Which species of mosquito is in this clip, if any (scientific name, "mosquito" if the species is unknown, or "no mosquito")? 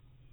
no mosquito